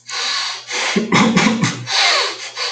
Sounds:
Throat clearing